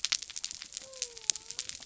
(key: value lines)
label: biophony
recorder: SoundTrap 300